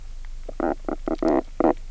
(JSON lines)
{"label": "biophony, knock croak", "recorder": "SoundTrap 300"}